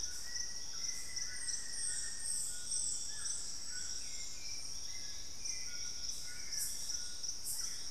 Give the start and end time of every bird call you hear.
[0.00, 7.90] Hauxwell's Thrush (Turdus hauxwelli)
[0.00, 7.90] White-throated Toucan (Ramphastos tucanus)
[0.21, 2.51] Black-faced Antthrush (Formicarius analis)

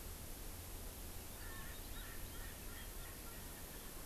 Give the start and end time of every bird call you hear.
[1.23, 4.03] Erckel's Francolin (Pternistis erckelii)

